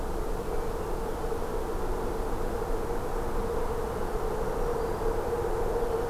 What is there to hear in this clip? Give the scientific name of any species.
Setophaga virens